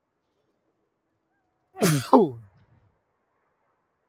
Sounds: Sneeze